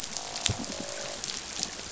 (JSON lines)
{"label": "biophony, croak", "recorder": "SoundTrap 500"}